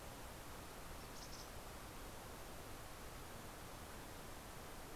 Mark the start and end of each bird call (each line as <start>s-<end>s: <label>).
0.6s-1.9s: Mountain Chickadee (Poecile gambeli)